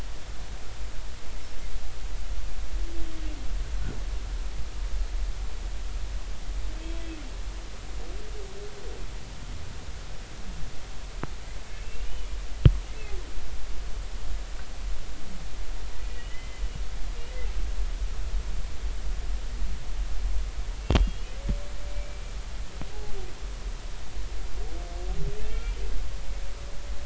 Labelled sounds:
11.7	12.3	humpback whale, 2.6 to 3.1 kHz
16.1	16.6	humpback whale, 1.9 to 3.1 kHz
20.7	21.4	humpback whale, 2.7 to 3.4 kHz
21.9	22.2	humpback whale, 2.2 to 2.4 kHz
25.5	25.8	humpback whale, 2.2 to 2.4 kHz

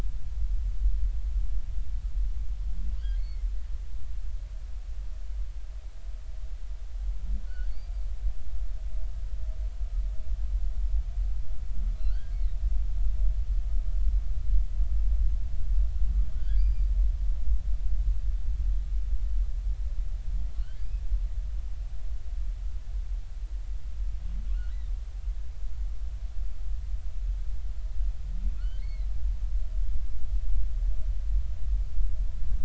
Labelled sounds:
3.1	3.4	humpback whale, 2.0 to 4.5 kHz
7.5	7.7	humpback whale, 1.4 to 1.7 kHz
12.1	12.6	humpback whale, 1.3 to 2.3 kHz
16.4	16.9	humpback whale, 1.4 to 4.9 kHz
28.6	29.1	humpback whale, 1.3 to 4.5 kHz

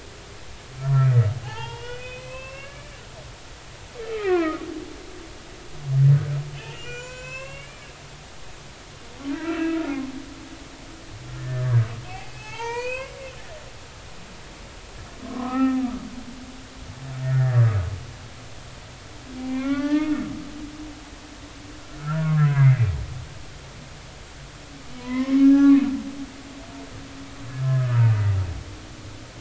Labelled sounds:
0.8	1.1	humpback whale, 1.6 to 1.9 kHz
1.4	3.0	humpback whale, 0.80 to 5.4 kHz
4.1	4.7	humpback whale, 0.96 to 2.8 kHz
6.6	7.9	humpback whale, 0.93 to 7.4 kHz
9.4	9.9	humpback whale, 1.2 to 2.8 kHz
11.4	13.2	humpback whale, 0.80 to 6.3 kHz
15.3	15.9	humpback whale, 0.80 to 2.7 kHz
17.2	17.7	humpback whale, 1.6 to 1.9 kHz
19.5	20.1	humpback whale, 0.83 to 4.8 kHz
22.0	22.9	humpback whale, 0.93 to 2.2 kHz
25.0	25.8	humpback whale, 0.93 to 2.3 kHz
27.5	28.0	humpback whale, 1.2 to 1.8 kHz

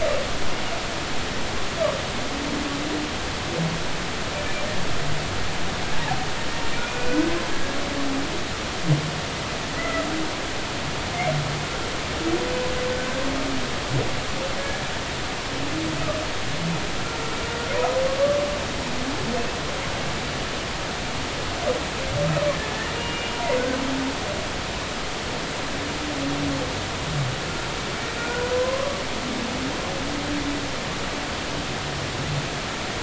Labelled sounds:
6.8	7.8	humpback whale, 1.4 to 2.5 kHz
9.8	10.1	humpback whale, 1.9 to 2.1 kHz
14.6	14.8	humpback whale, 1.6 to 1.8 kHz
22.6	23.6	humpback whale, 0.90 to 1.9 kHz
24.0	24.4	humpback whale, 2.8 to 3.0 kHz
28.2	29.0	humpback whale, 0.96 to 1.5 kHz

